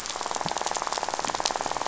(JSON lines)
{"label": "biophony, rattle", "recorder": "SoundTrap 500"}